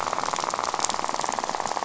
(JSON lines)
{"label": "biophony, rattle", "recorder": "SoundTrap 500"}